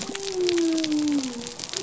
{"label": "biophony", "recorder": "SoundTrap 300"}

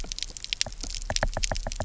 {"label": "biophony, knock", "recorder": "SoundTrap 300"}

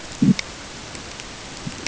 {"label": "ambient", "recorder": "HydroMoth"}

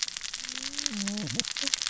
{"label": "biophony, cascading saw", "recorder": "SoundTrap 600 or HydroMoth"}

